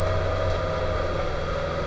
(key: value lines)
label: anthrophony, boat engine
recorder: SoundTrap 300